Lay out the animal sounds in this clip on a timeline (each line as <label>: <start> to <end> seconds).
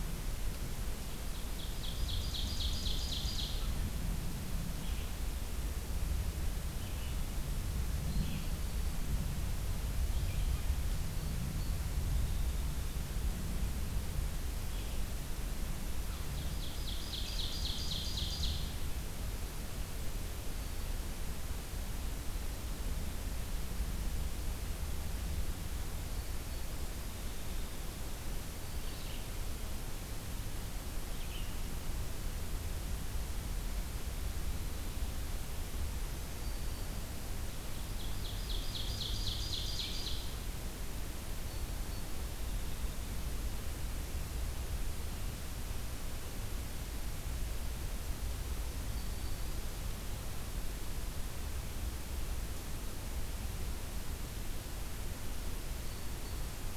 Ovenbird (Seiurus aurocapilla): 1.2 to 3.7 seconds
Red-eyed Vireo (Vireo olivaceus): 4.7 to 10.7 seconds
Ovenbird (Seiurus aurocapilla): 16.3 to 18.9 seconds
Red-eyed Vireo (Vireo olivaceus): 28.6 to 31.8 seconds
Black-throated Green Warbler (Setophaga virens): 35.8 to 37.3 seconds
Ovenbird (Seiurus aurocapilla): 37.7 to 40.4 seconds
Black-throated Green Warbler (Setophaga virens): 48.5 to 49.6 seconds